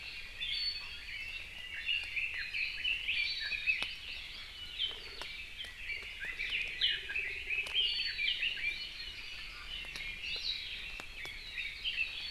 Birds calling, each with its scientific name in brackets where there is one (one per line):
Iiwi (Drepanis coccinea)
Hawaii Amakihi (Chlorodrepanis virens)
Red-billed Leiothrix (Leiothrix lutea)